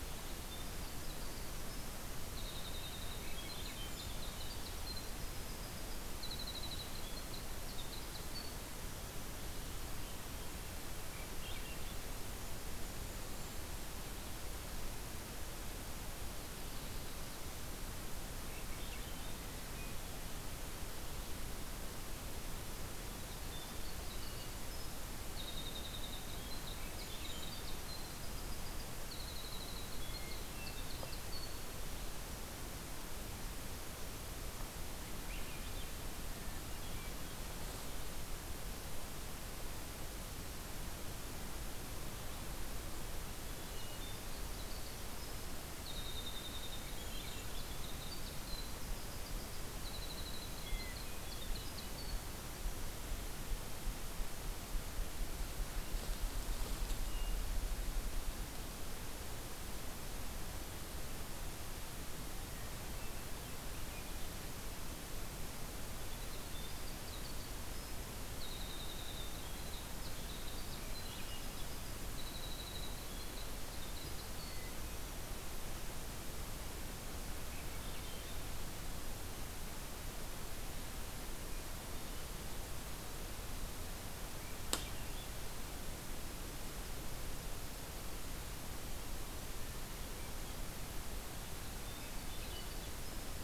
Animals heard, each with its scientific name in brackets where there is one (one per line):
Golden-crowned Kinglet (Regulus satrapa)
Swainson's Thrush (Catharus ustulatus)
Winter Wren (Troglodytes hiemalis)
Hermit Thrush (Catharus guttatus)